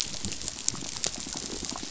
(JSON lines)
{"label": "biophony, pulse", "recorder": "SoundTrap 500"}